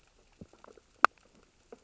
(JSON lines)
{"label": "biophony, sea urchins (Echinidae)", "recorder": "SoundTrap 600 or HydroMoth"}